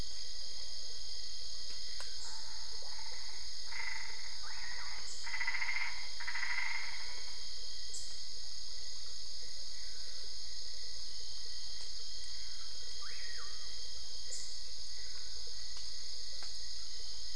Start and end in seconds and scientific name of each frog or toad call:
2.5	7.2	Boana albopunctata